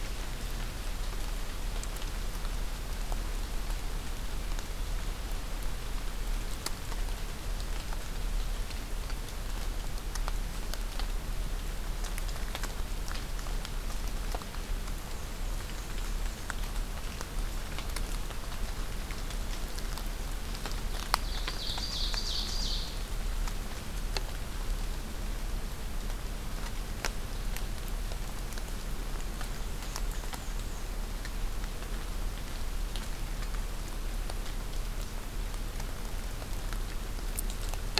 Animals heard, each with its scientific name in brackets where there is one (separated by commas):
Ovenbird (Seiurus aurocapilla), Black-and-white Warbler (Mniotilta varia)